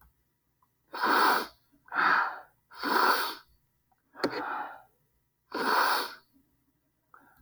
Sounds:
Sniff